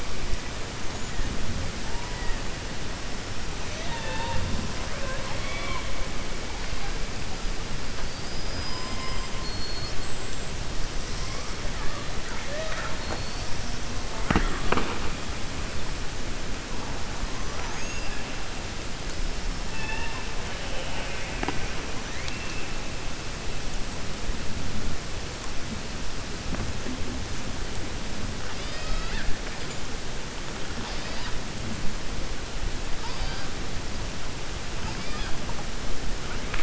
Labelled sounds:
4.9	5.9	killer whale, 0.53 to 4.2 kHz
12.9	13.5	killer whale, 3.8 to 5.5 kHz
19.7	20.2	killer whale, 0.86 to 3.6 kHz
28.4	29.3	killer whale, 0.66 to 5.2 kHz

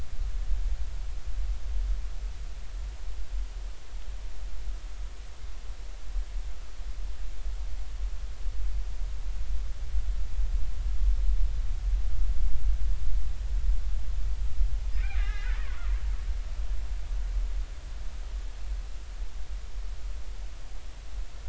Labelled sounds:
15.2	15.5	killer whale, Bigg's (transient), 1.2 to 2.2 kHz

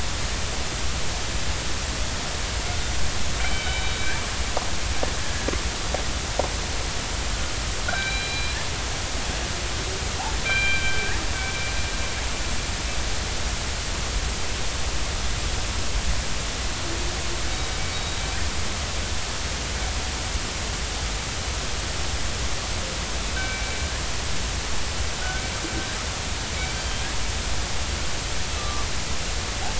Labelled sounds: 3.4	4.2	killer whale, northern resident, 2.2 to 3.9 kHz
5.2	5.5	killer whale, northern resident, 1.6 to 1.8 kHz
7.9	8.6	killer whale, northern resident, 1.3 to 4.0 kHz
10.4	11.0	killer whale, northern resident, 1.5 to 3.2 kHz
17.9	18.2	killer whale, northern resident, 3.7 to 3.9 kHz
23.3	23.8	killer whale, northern resident, 1.5 to 2.4 kHz
26.6	27.0	killer whale, northern resident, 3.1 to 4.8 kHz
28.6	28.9	killer whale, northern resident, 1.1 to 1.2 kHz

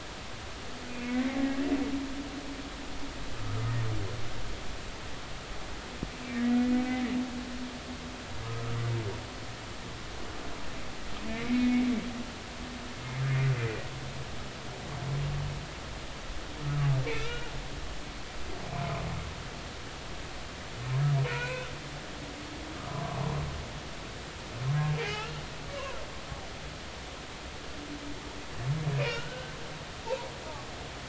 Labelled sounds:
0.9	1.6	humpback whale, 0.80 to 2.6 kHz
3.4	3.6	humpback whale, 1.2 to 1.4 kHz
6.3	6.6	humpback whale, 1.8 to 2.0 kHz
8.4	8.8	humpback whale, 0.99 to 1.3 kHz
11.4	11.8	humpback whale, 2.0 to 2.5 kHz
17.0	17.5	humpback whale, 1.3 to 2.9 kHz
21.3	21.7	humpback whale, 0.90 to 2.6 kHz
25.0	25.4	humpback whale, 0.80 to 2.8 kHz
29.0	29.5	humpback whale, 1.3 to 3.0 kHz

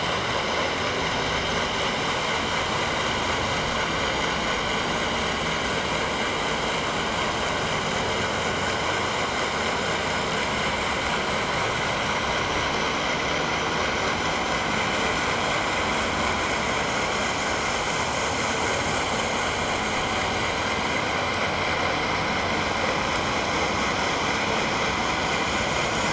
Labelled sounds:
16.6	16.8	vessel noise, 6.3 to 6.6 kHz

